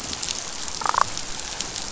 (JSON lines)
{"label": "biophony, damselfish", "recorder": "SoundTrap 500"}